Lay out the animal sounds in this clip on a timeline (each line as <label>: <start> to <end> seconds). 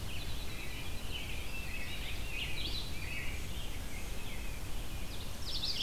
Winter Wren (Troglodytes hiemalis): 0.0 to 3.4 seconds
Rose-breasted Grosbeak (Pheucticus ludovicianus): 0.0 to 4.6 seconds
Red-eyed Vireo (Vireo olivaceus): 0.0 to 5.8 seconds
American Robin (Turdus migratorius): 1.0 to 3.4 seconds
Ovenbird (Seiurus aurocapilla): 5.3 to 5.8 seconds